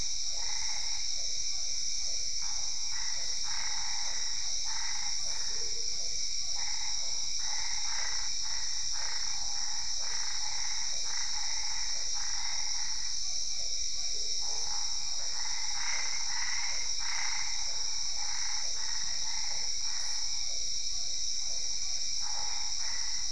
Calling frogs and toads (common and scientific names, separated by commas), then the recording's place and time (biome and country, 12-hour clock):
Boana albopunctata, Physalaemus cuvieri
Cerrado, Brazil, 8:30pm